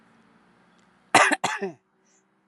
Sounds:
Throat clearing